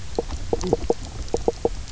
{"label": "biophony, knock croak", "recorder": "SoundTrap 300"}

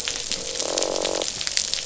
{"label": "biophony, croak", "recorder": "SoundTrap 500"}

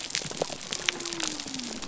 {"label": "biophony", "recorder": "SoundTrap 300"}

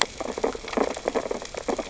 {"label": "biophony, sea urchins (Echinidae)", "recorder": "SoundTrap 600 or HydroMoth"}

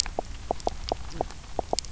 {"label": "biophony, knock croak", "recorder": "SoundTrap 300"}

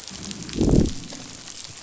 {"label": "biophony, growl", "recorder": "SoundTrap 500"}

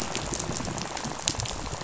{"label": "biophony, rattle", "recorder": "SoundTrap 500"}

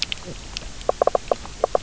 {"label": "biophony, knock croak", "recorder": "SoundTrap 300"}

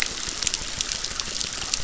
{"label": "biophony, crackle", "recorder": "SoundTrap 600"}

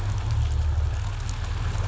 {"label": "anthrophony, boat engine", "recorder": "SoundTrap 500"}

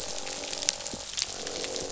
{"label": "biophony, croak", "recorder": "SoundTrap 500"}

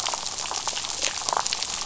{"label": "biophony, damselfish", "recorder": "SoundTrap 500"}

